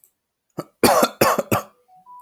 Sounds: Cough